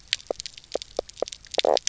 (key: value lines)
label: biophony, knock croak
recorder: SoundTrap 300